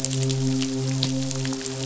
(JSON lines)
{"label": "biophony, midshipman", "recorder": "SoundTrap 500"}